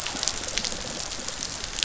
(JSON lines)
{"label": "biophony", "recorder": "SoundTrap 500"}